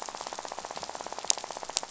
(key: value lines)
label: biophony, rattle
recorder: SoundTrap 500